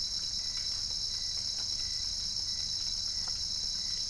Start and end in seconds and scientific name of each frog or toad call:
none